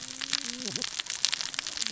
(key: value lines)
label: biophony, cascading saw
recorder: SoundTrap 600 or HydroMoth